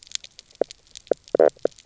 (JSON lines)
{"label": "biophony, knock croak", "recorder": "SoundTrap 300"}